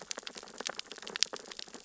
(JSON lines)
{"label": "biophony, sea urchins (Echinidae)", "recorder": "SoundTrap 600 or HydroMoth"}